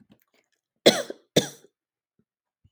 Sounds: Cough